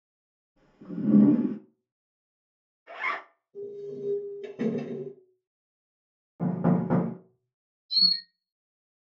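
First, at 0.56 seconds, wooden furniture moves. Next, at 2.86 seconds, there is the sound of a zipper. After that, at 3.53 seconds, you can hear furniture moving. Later, at 6.4 seconds, there is knocking. Following that, at 7.89 seconds, chirping can be heard.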